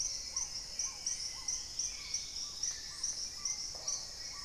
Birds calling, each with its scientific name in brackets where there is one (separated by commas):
Dusky-throated Antshrike (Thamnomanes ardesiacus), Hauxwell's Thrush (Turdus hauxwelli), Black-tailed Trogon (Trogon melanurus), Paradise Tanager (Tangara chilensis), Dusky-capped Greenlet (Pachysylvia hypoxantha), Red-necked Woodpecker (Campephilus rubricollis)